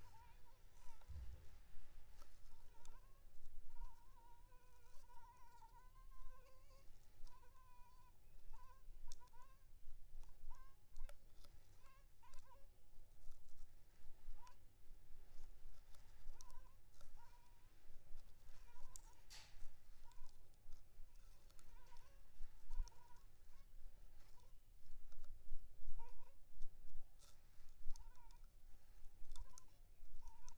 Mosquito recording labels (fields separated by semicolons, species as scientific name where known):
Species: Anopheles funestus s.s.; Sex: female; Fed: unfed; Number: one; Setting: cup